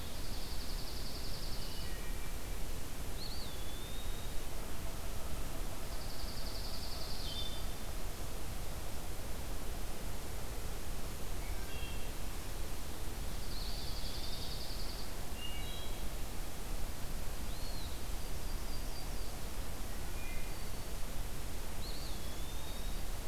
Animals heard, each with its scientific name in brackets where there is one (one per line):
Eastern Wood-Pewee (Contopus virens)
Yellow-rumped Warbler (Setophaga coronata)
Wood Thrush (Hylocichla mustelina)
Dark-eyed Junco (Junco hyemalis)